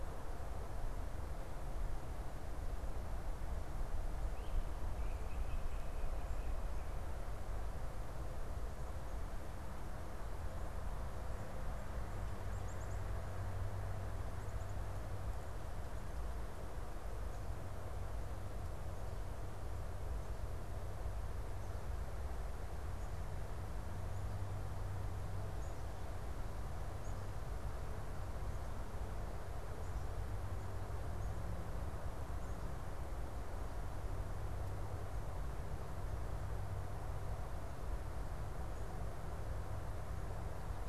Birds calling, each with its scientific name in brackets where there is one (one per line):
Black-capped Chickadee (Poecile atricapillus)
unidentified bird